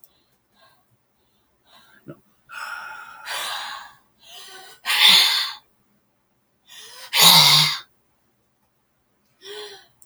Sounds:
Sigh